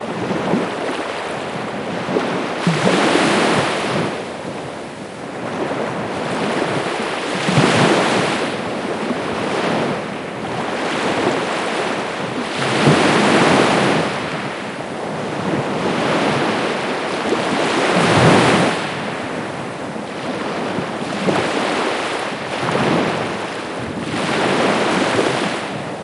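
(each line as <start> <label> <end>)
2.2 A strong wave crashes loudly onto the shore and then slowly fades as the water pulls back. 4.5
8.5 Gentle ocean waves roll in and out steadily and rhythmically, creating a calm atmosphere. 12.4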